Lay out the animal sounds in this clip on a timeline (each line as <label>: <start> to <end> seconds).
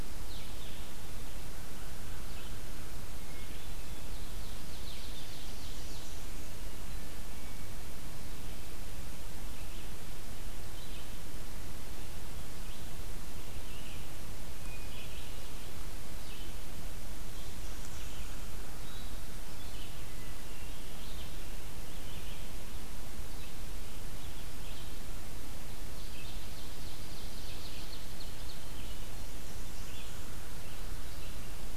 Blue-headed Vireo (Vireo solitarius): 0.0 to 5.4 seconds
Ovenbird (Seiurus aurocapilla): 3.2 to 6.2 seconds
Red-eyed Vireo (Vireo olivaceus): 9.5 to 31.8 seconds
Hermit Thrush (Catharus guttatus): 14.5 to 15.8 seconds
Hermit Thrush (Catharus guttatus): 20.0 to 21.3 seconds
Ovenbird (Seiurus aurocapilla): 25.9 to 28.8 seconds
Blackburnian Warbler (Setophaga fusca): 29.0 to 30.4 seconds